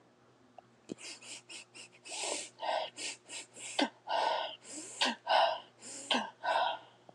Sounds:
Sniff